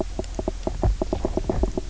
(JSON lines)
{"label": "biophony, knock croak", "recorder": "SoundTrap 300"}